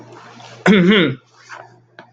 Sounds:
Throat clearing